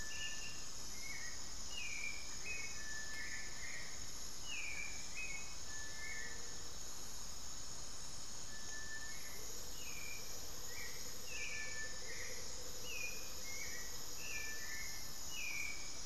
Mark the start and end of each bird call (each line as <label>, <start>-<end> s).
Hauxwell's Thrush (Turdus hauxwelli), 0.0-16.1 s
Amazonian Motmot (Momotus momota), 2.2-2.7 s
Gray-fronted Dove (Leptotila rufaxilla), 5.9-6.9 s
Amazonian Motmot (Momotus momota), 9.3-14.8 s